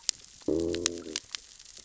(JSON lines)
{"label": "biophony, growl", "recorder": "SoundTrap 600 or HydroMoth"}